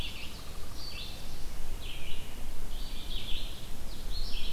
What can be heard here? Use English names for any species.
Pileated Woodpecker, Red-eyed Vireo, Yellow-rumped Warbler